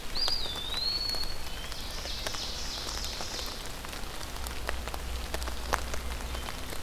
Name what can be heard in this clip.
Eastern Wood-Pewee, Ovenbird